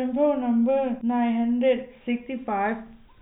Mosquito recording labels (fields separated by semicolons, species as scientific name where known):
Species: no mosquito; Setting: cup